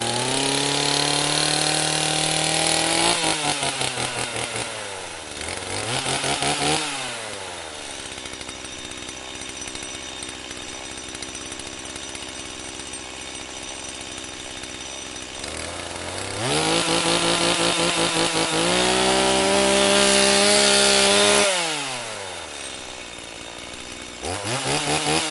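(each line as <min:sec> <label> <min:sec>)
0:00.0 A chainsaw sawing loudly. 0:07.2
0:07.3 A chainsaw idly purring at moderate volume. 0:16.0
0:16.1 A chainsaw loudly sawing wood. 0:21.9
0:22.0 A chainsaw idly purring at moderate volume. 0:24.3
0:24.4 A chainsaw is sawing loudly. 0:25.3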